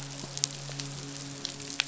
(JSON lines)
{"label": "biophony, midshipman", "recorder": "SoundTrap 500"}